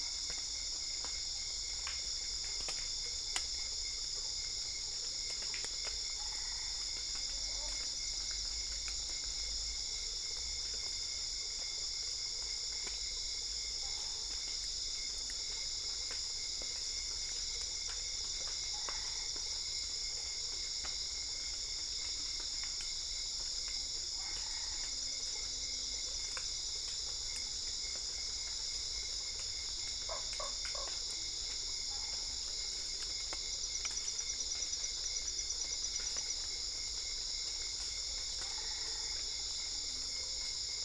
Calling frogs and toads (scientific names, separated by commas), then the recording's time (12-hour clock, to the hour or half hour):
Boana albopunctata, Boana lundii
10pm